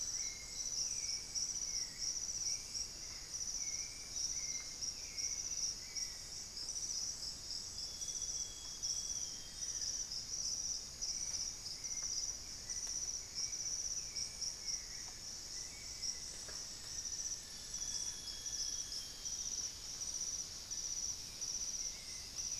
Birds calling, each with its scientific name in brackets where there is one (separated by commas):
Amazonian Barred-Woodcreeper (Dendrocolaptes certhia), Buff-breasted Wren (Cantorchilus leucotis), Hauxwell's Thrush (Turdus hauxwelli), Thrush-like Wren (Campylorhynchus turdinus), Elegant Woodcreeper (Xiphorhynchus elegans), Amazonian Grosbeak (Cyanoloxia rothschildii)